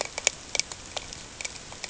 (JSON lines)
{"label": "ambient", "recorder": "HydroMoth"}